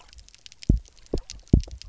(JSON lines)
{"label": "biophony, double pulse", "recorder": "SoundTrap 300"}